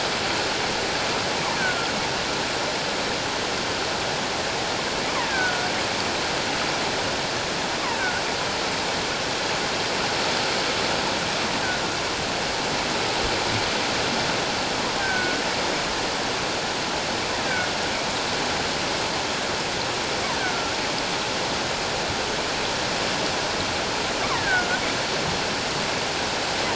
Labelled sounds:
1.6	1.9	killer whale, offshore, call OFF17, 1.3 to 1.7 kHz
5.2	5.7	killer whale, offshore, call OFF17, 1.3 to 2.2 kHz
8.0	8.2	killer whale, offshore, call OFF17, 1.4 to 1.6 kHz
15.0	15.4	killer whale, offshore, call OFF17, 1.4 to 1.6 kHz
20.4	20.7	killer whale, offshore, call OFF17, 1.3 to 1.7 kHz
24.3	24.7	killer whale, offshore, call OFF17, 1.4 to 2.0 kHz

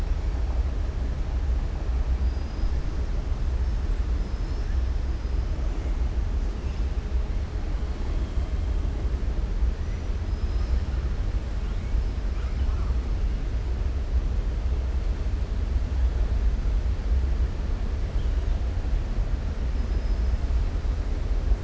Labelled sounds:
2.2	2.8	killer whale, southern resident, 4.5 to 5.4 kHz
4.1	4.9	killer whale, southern resident, 4.2 to 6.1 kHz
10.2	10.8	killer whale, southern resident, 4.2 to 6.5 kHz
19.8	20.3	killer whale, southern resident, 5.0 to 6.1 kHz

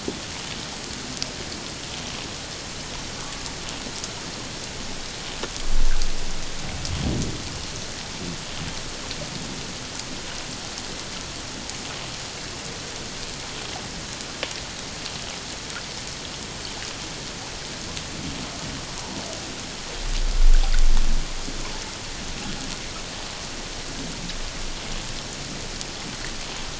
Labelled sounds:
19.0	19.2	water noise, 0.81 to 1.0 kHz

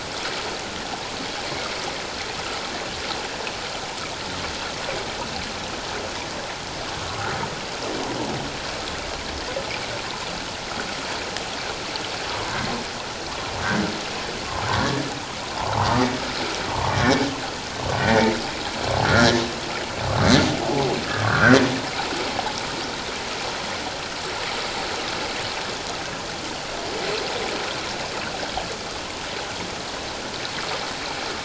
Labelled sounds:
18.0	18.3	humpback whale, 1.8 to 2.0 kHz
19.1	19.4	humpback whale, 1.3 to 1.9 kHz
20.7	21.0	humpback whale, 0.78 to 0.91 kHz
21.2	21.6	humpback whale, 1.1 to 1.7 kHz

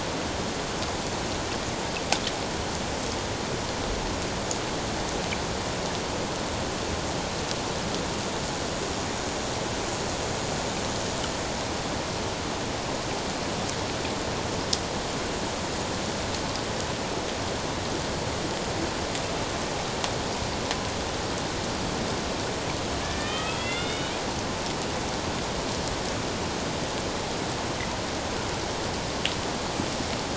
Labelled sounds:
23.0	24.2	killer whale, Bigg's (transient), 1.2 to 3.8 kHz

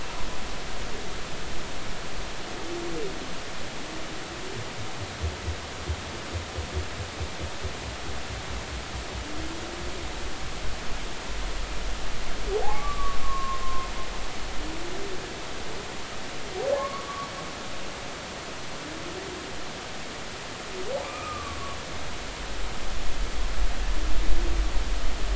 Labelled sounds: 12.5	13.9	humpback whale, 0.80 to 1.2 kHz
16.8	17.3	humpback whale, 0.96 to 1.2 kHz
21.0	21.6	humpback whale, 1.0 to 2.6 kHz

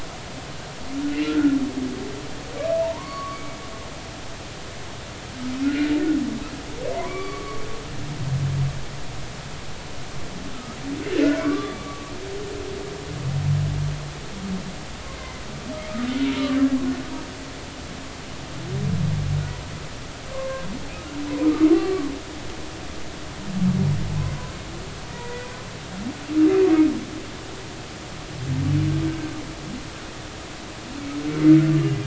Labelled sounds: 1.2	1.6	humpback whale, 1.3 to 1.7 kHz
2.8	3.6	humpback whale, 0.86 to 4.5 kHz
5.6	5.9	humpback whale, 1.3 to 1.5 kHz
6.9	7.6	humpback whale, 0.86 to 2.4 kHz
11.2	12.1	humpback whale, 0.99 to 1.6 kHz
15.2	15.4	humpback whale, 2.0 to 2.1 kHz
20.3	20.6	humpback whale, 0.99 to 1.1 kHz
21.4	22.0	humpback whale, 1.1 to 4.3 kHz
25.1	25.5	humpback whale, 0.90 to 2.0 kHz

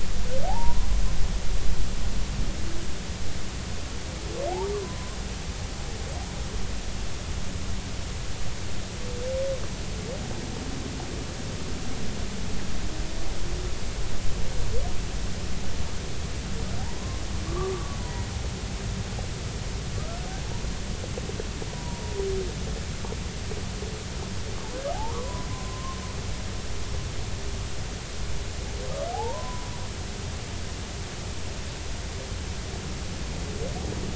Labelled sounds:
0.5	0.9	humpback whale, 0.80 to 1.1 kHz
4.7	5.0	humpback whale, 0.96 to 1.2 kHz
17.5	18.3	humpback whale, 0.90 to 2.0 kHz
21.7	22.0	humpback whale, 0.90 to 1.0 kHz
24.9	26.0	humpback whale, 0.80 to 1.3 kHz
29.1	29.7	humpback whale, 0.80 to 1.1 kHz

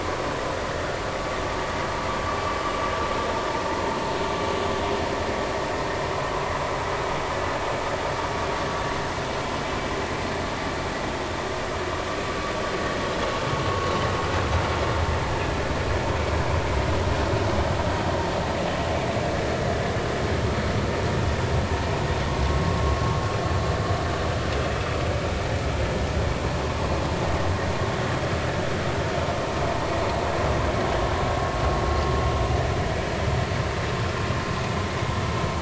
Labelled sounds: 13.5	13.9	vessel noise, 1.0 to 1.1 kHz

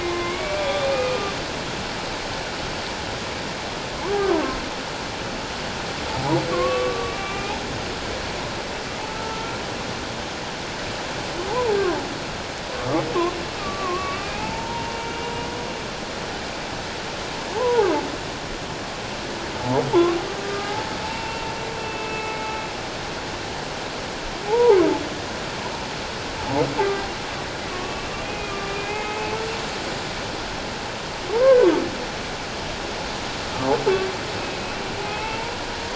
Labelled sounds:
0.0	1.3	humpback whale, 1.0 to 3.8 kHz
4.2	4.5	humpback whale, 0.88 to 1.2 kHz
6.5	7.6	humpback whale, 1.0 to 2.6 kHz
9.1	9.6	humpback whale, 1.3 to 1.4 kHz
11.5	11.8	humpback whale, 0.78 to 1.1 kHz
13.6	15.3	humpback whale, 0.81 to 2.7 kHz
17.6	17.9	humpback whale, 0.78 to 1.1 kHz
20.4	21.5	humpback whale, 0.84 to 2.8 kHz
21.8	22.4	humpback whale, 2.1 to 2.7 kHz
24.5	24.8	humpback whale, 0.78 to 1.0 kHz
27.7	29.3	humpback whale, 1.1 to 2.8 kHz
31.3	31.7	humpback whale, 0.84 to 1.7 kHz
35.0	35.5	humpback whale, 0.84 to 2.7 kHz

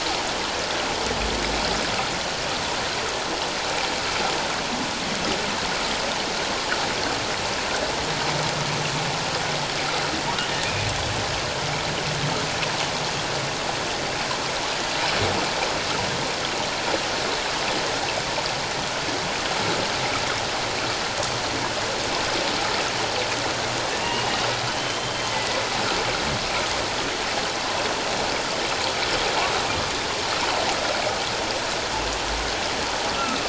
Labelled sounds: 24.0	24.3	humpback whale, 2.7 to 3.1 kHz
24.7	25.6	humpback whale, 1.9 to 3.3 kHz

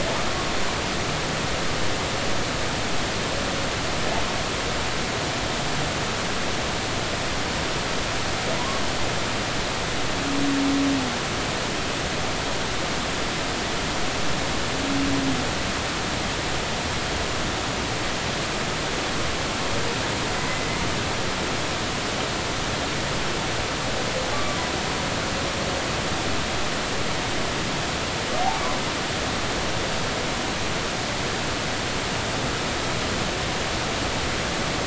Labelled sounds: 20.4	20.7	humpback whale, 1.9 to 2.1 kHz
24.3	24.6	humpback whale, 1.1 to 1.2 kHz

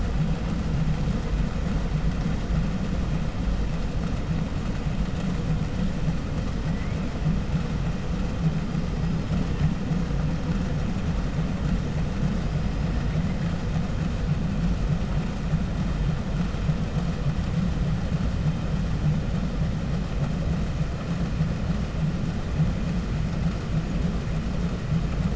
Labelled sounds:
6.4	7.0	killer whale, 1.3 to 5.8 kHz
8.6	9.5	killer whale, 0.96 to 5.2 kHz
12.4	13.2	killer whale, 1.4 to 5.3 kHz

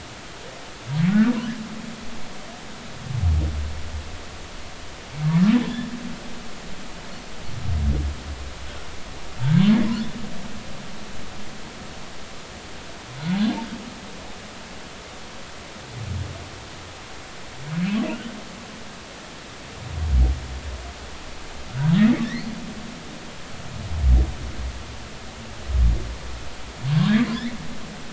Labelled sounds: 5.2	5.5	humpback whale, 1.7 to 1.9 kHz
18.0	18.3	humpback whale, 2.4 to 3.1 kHz
21.7	22.2	humpback whale, 1.3 to 2.0 kHz

